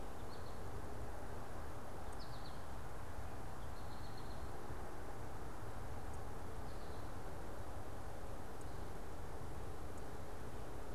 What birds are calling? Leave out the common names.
Spinus tristis